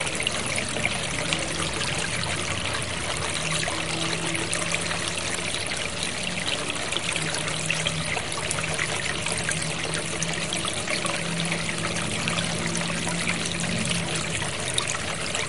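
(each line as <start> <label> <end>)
0.0 A water stream flows monotonously. 15.5
1.1 A distant buzzing sound. 2.1
4.0 A distant buzzing sound. 5.4
11.0 A distant buzzing sound. 14.6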